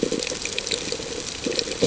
{"label": "ambient", "recorder": "HydroMoth"}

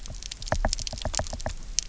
{"label": "biophony, knock", "recorder": "SoundTrap 300"}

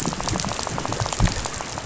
{"label": "biophony, rattle", "recorder": "SoundTrap 500"}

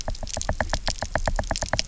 {"label": "biophony, knock", "recorder": "SoundTrap 300"}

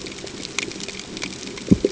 {"label": "ambient", "recorder": "HydroMoth"}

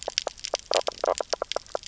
{"label": "biophony, knock croak", "recorder": "SoundTrap 300"}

